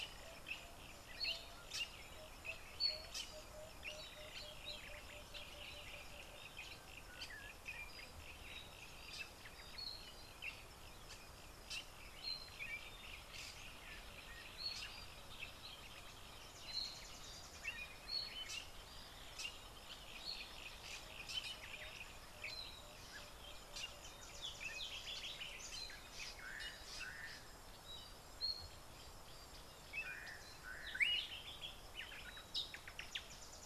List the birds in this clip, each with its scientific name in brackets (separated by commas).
Fork-tailed Drongo (Dicrurus adsimilis), Yellow-breasted Apalis (Apalis flavida), Slate-colored Boubou (Laniarius funebris)